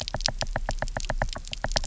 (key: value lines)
label: biophony, knock
recorder: SoundTrap 300